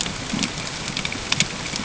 {"label": "ambient", "recorder": "HydroMoth"}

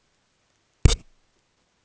{"label": "ambient", "recorder": "HydroMoth"}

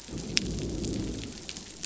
{"label": "biophony, growl", "recorder": "SoundTrap 500"}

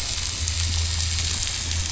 {"label": "anthrophony, boat engine", "recorder": "SoundTrap 500"}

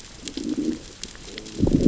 {"label": "biophony, growl", "recorder": "SoundTrap 600 or HydroMoth"}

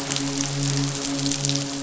{"label": "biophony, midshipman", "recorder": "SoundTrap 500"}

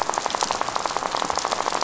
{"label": "biophony, rattle", "recorder": "SoundTrap 500"}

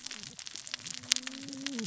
{"label": "biophony, cascading saw", "recorder": "SoundTrap 600 or HydroMoth"}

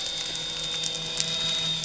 {"label": "anthrophony, boat engine", "recorder": "SoundTrap 300"}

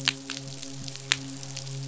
{"label": "biophony, midshipman", "recorder": "SoundTrap 500"}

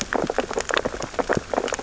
{"label": "biophony, sea urchins (Echinidae)", "recorder": "SoundTrap 600 or HydroMoth"}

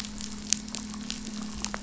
{"label": "anthrophony, boat engine", "recorder": "SoundTrap 500"}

